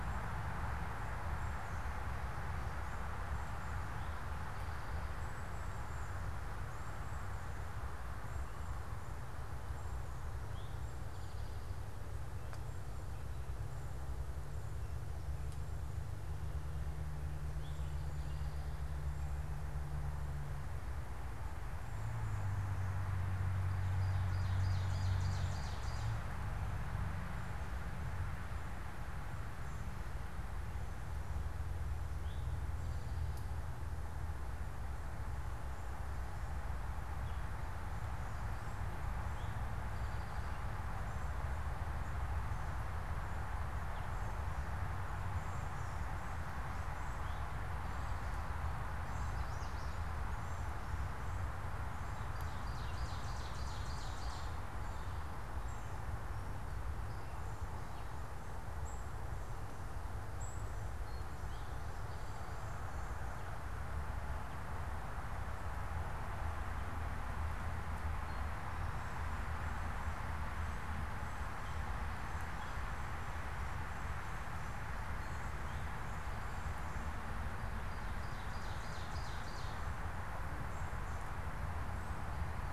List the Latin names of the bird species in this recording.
Pipilo erythrophthalmus, Seiurus aurocapilla, unidentified bird